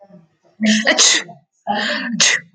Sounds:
Sneeze